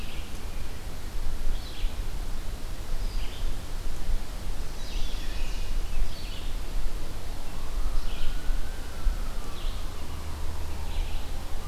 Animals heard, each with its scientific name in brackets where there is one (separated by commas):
Chestnut-sided Warbler (Setophaga pensylvanica), Red-eyed Vireo (Vireo olivaceus)